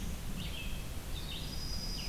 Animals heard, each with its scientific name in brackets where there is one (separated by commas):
Red-eyed Vireo (Vireo olivaceus), Dark-eyed Junco (Junco hyemalis)